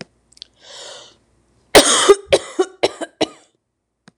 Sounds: Cough